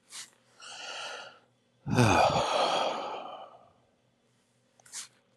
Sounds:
Sigh